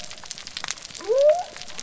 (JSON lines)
{"label": "biophony", "recorder": "SoundTrap 300"}